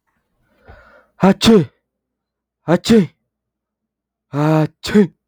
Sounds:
Sneeze